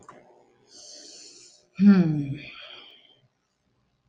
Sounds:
Sigh